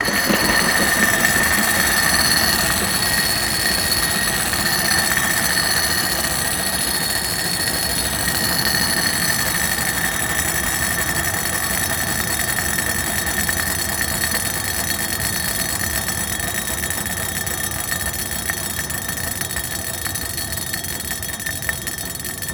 Are there animals making noise?
no